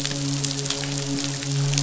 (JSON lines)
{"label": "biophony, midshipman", "recorder": "SoundTrap 500"}